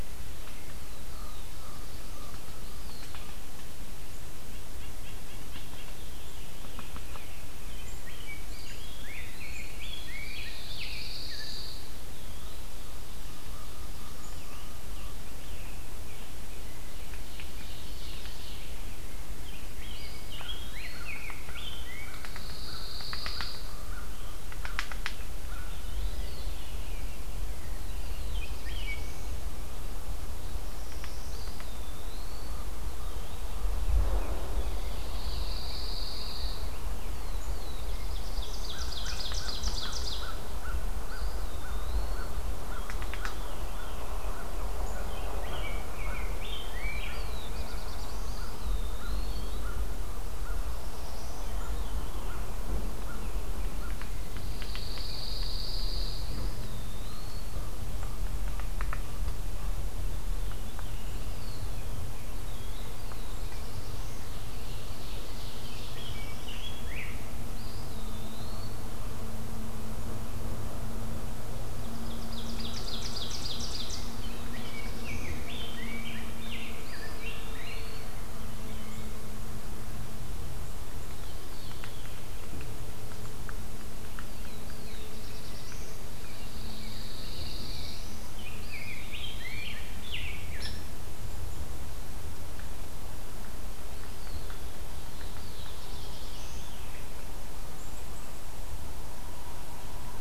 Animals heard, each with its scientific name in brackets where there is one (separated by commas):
Yellow-bellied Sapsucker (Sphyrapicus varius), Eastern Wood-Pewee (Contopus virens), Rose-breasted Grosbeak (Pheucticus ludovicianus), Black-throated Blue Warbler (Setophaga caerulescens), Common Raven (Corvus corax), White-breasted Nuthatch (Sitta carolinensis), Veery (Catharus fuscescens), American Crow (Corvus brachyrhynchos), Black-capped Chickadee (Poecile atricapillus), Ovenbird (Seiurus aurocapilla), Pine Warbler (Setophaga pinus)